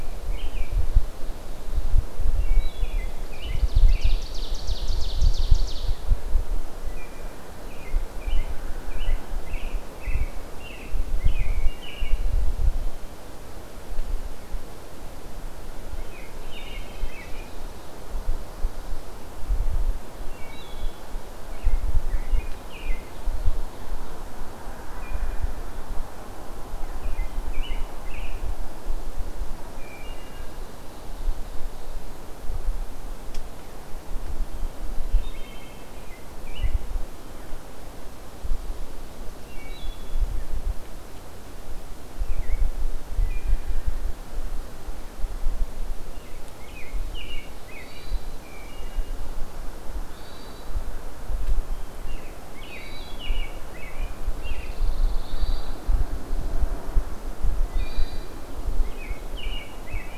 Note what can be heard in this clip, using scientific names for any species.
Turdus migratorius, Hylocichla mustelina, Seiurus aurocapilla, Catharus guttatus, Setophaga pinus